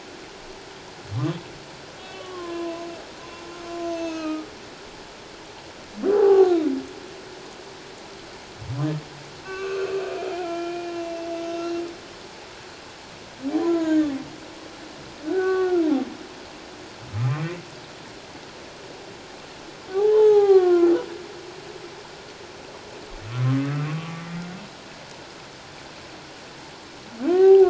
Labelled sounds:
2.1	2.8	humpback whale, 0.97 to 1.2 kHz
3.8	4.5	humpback whale, 1.2 to 6.7 kHz
6.1	6.7	humpback whale, 0.78 to 4.0 kHz
9.4	11.8	humpback whale, 1.1 to 6.5 kHz
13.6	14.1	humpback whale, 0.91 to 2.1 kHz
15.2	15.9	humpback whale, 0.78 to 1.6 kHz
17.1	17.5	humpback whale, 1.2 to 1.4 kHz
19.9	20.9	humpback whale, 0.78 to 4.2 kHz
23.6	24.3	humpback whale, 1.1 to 1.2 kHz
27.3	27.6	humpback whale, 0.78 to 1.2 kHz

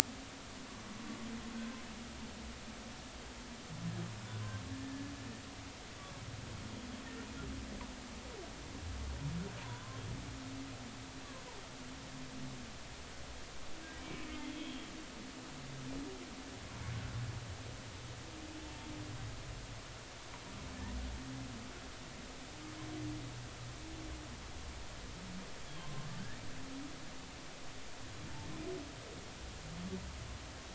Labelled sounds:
4.8	5.1	humpback whale, 1.7 to 1.8 kHz
9.6	10.0	humpback whale, 0.90 to 1.1 kHz
14.5	15.3	humpback whale, 2.2 to 3.4 kHz
25.8	26.1	humpback whale, 0.99 to 1.1 kHz

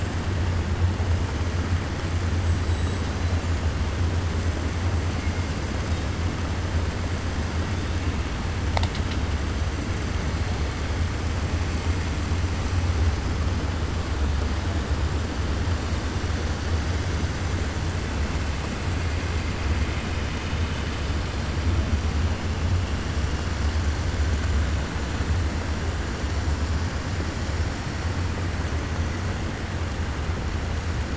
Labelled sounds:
2.4	3.0	killer whale, 6.9 to 8.0 kHz

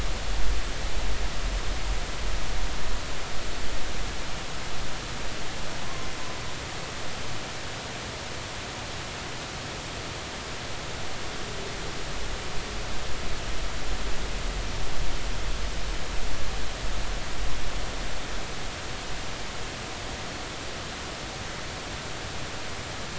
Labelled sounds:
5.8	6.1	humpback whale, 0.99 to 1.1 kHz

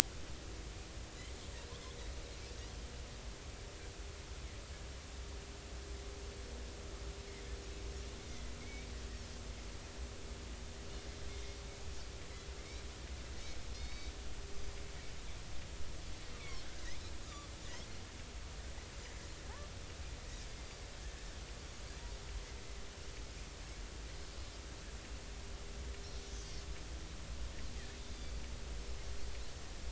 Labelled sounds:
8.6	8.9	Pacific white-sided dolphin, 2.1 to 2.4 kHz
13.7	14.1	Pacific white-sided dolphin, 2.1 to 6.1 kHz
26.2	26.6	Pacific white-sided dolphin, 4.4 to 6.0 kHz
28.0	28.4	Pacific white-sided dolphin, 3.4 to 4.8 kHz

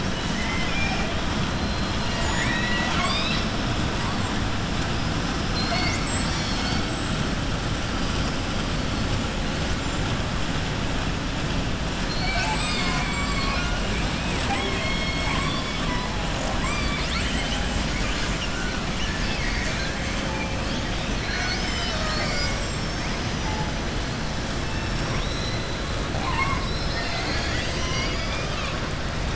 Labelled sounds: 0.1	1.1	killer whale, southern resident, 0.75 to 3.9 kHz
2.0	3.5	killer whale, southern resident, 0.71 to 7.9 kHz

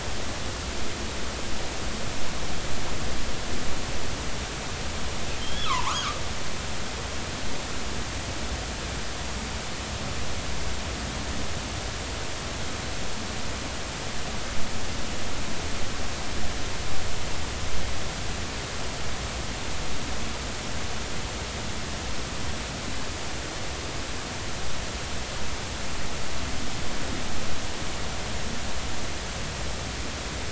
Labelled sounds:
5.4	6.0	killer whale, northern resident, G clan, GG subclan, call N29, 0.83 to 3.5 kHz

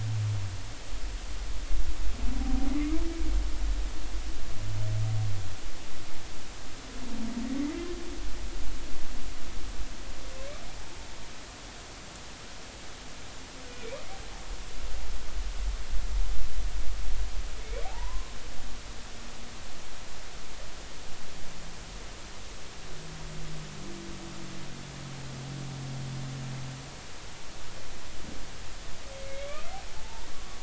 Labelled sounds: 2.4	3.0	humpback whale, 0.80 to 2.4 kHz
17.8	18.4	humpback whale, 0.80 to 1.1 kHz
29.1	30.3	humpback whale, 0.83 to 2.7 kHz

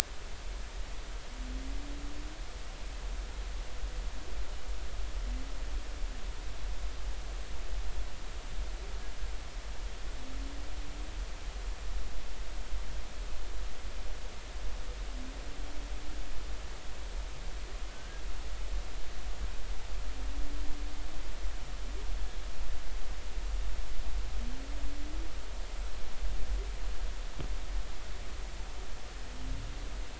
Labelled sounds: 17.9	18.2	humpback whale, 1.5 to 1.7 kHz

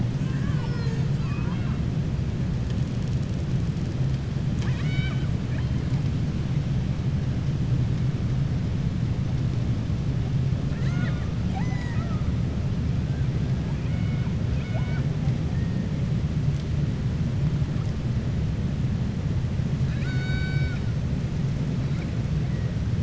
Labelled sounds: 4.4	5.3	killer whale, southern resident, 0.93 to 7.9 kHz
10.6	12.2	killer whale, southern resident, 0.60 to 7.9 kHz
13.6	15.1	killer whale, southern resident, 0.64 to 4.6 kHz
19.8	20.9	killer whale, southern resident, 0.76 to 7.6 kHz

